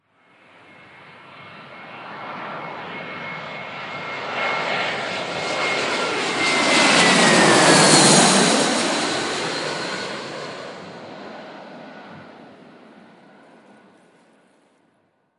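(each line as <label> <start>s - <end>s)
An airplane passes by, its sound growing louder and then fading away. 0.0s - 15.4s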